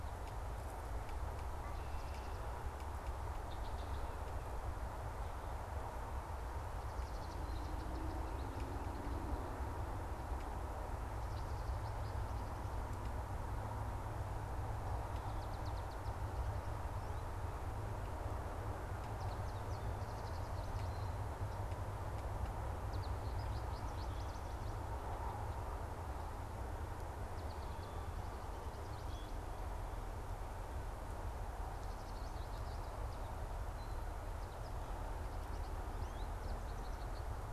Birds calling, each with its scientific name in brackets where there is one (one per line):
American Goldfinch (Spinus tristis)